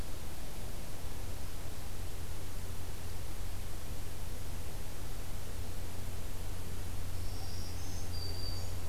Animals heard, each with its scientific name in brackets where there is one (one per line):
Black-throated Green Warbler (Setophaga virens)